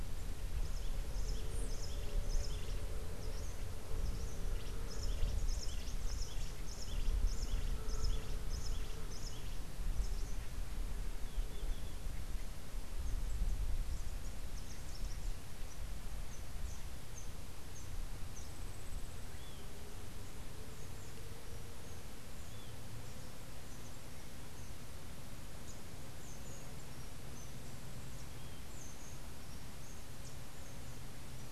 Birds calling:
Cabanis's Wren (Cantorchilus modestus)

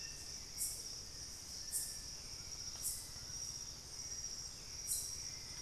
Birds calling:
Western Striolated-Puffbird (Nystalus obamai), Hauxwell's Thrush (Turdus hauxwelli)

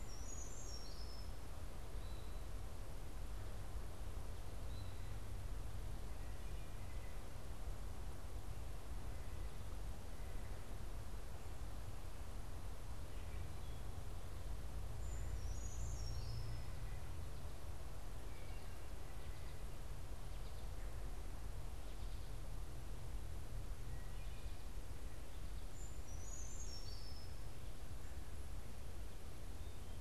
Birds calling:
Wood Thrush (Hylocichla mustelina), White-breasted Nuthatch (Sitta carolinensis), American Goldfinch (Spinus tristis), Brown Creeper (Certhia americana)

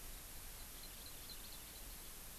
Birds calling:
Hawaii Amakihi (Chlorodrepanis virens)

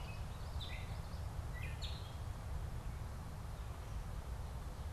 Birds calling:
Common Yellowthroat (Geothlypis trichas), Gray Catbird (Dumetella carolinensis)

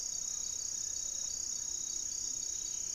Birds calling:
Ruddy Pigeon (Patagioenas subvinacea), Gray-fronted Dove (Leptotila rufaxilla), Amazonian Trogon (Trogon ramonianus)

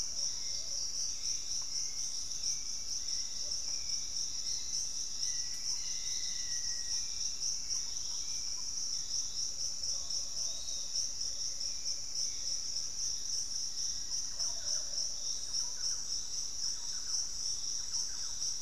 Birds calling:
Hauxwell's Thrush (Turdus hauxwelli), Thrush-like Wren (Campylorhynchus turdinus), Piratic Flycatcher (Legatus leucophaius), Black-faced Antthrush (Formicarius analis), Lemon-throated Barbet (Eubucco richardsoni)

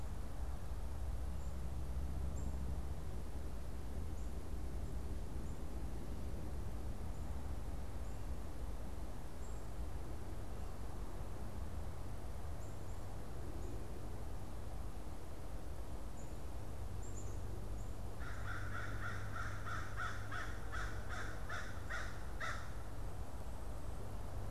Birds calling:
Black-capped Chickadee (Poecile atricapillus), American Crow (Corvus brachyrhynchos)

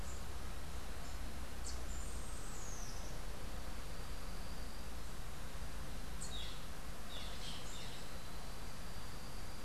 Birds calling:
Boat-billed Flycatcher (Megarynchus pitangua), Rufous-tailed Hummingbird (Amazilia tzacatl)

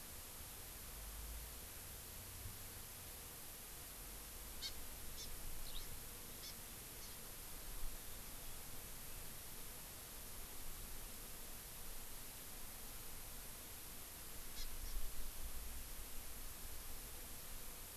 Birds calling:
Hawaii Amakihi (Chlorodrepanis virens), Eurasian Skylark (Alauda arvensis)

